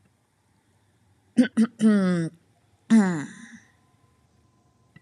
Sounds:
Throat clearing